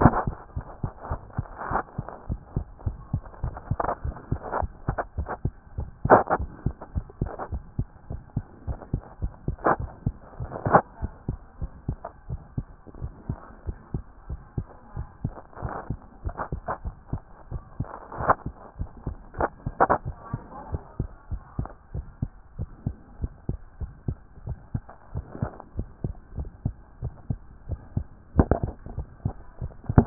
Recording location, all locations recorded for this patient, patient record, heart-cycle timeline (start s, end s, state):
tricuspid valve (TV)
pulmonary valve (PV)+tricuspid valve (TV)+mitral valve (MV)
#Age: Child
#Sex: Female
#Height: 90.0 cm
#Weight: 15.6 kg
#Pregnancy status: False
#Murmur: Absent
#Murmur locations: nan
#Most audible location: nan
#Systolic murmur timing: nan
#Systolic murmur shape: nan
#Systolic murmur grading: nan
#Systolic murmur pitch: nan
#Systolic murmur quality: nan
#Diastolic murmur timing: nan
#Diastolic murmur shape: nan
#Diastolic murmur grading: nan
#Diastolic murmur pitch: nan
#Diastolic murmur quality: nan
#Outcome: Normal
#Campaign: 2014 screening campaign
0.00	0.56	unannotated
0.56	0.66	S1
0.66	0.82	systole
0.82	0.92	S2
0.92	1.10	diastole
1.10	1.20	S1
1.20	1.36	systole
1.36	1.46	S2
1.46	1.70	diastole
1.70	1.80	S1
1.80	1.98	systole
1.98	2.06	S2
2.06	2.28	diastole
2.28	2.39	S1
2.39	2.56	systole
2.56	2.66	S2
2.66	2.86	diastole
2.86	2.98	S1
2.98	3.12	systole
3.12	3.22	S2
3.22	3.42	diastole
3.42	30.06	unannotated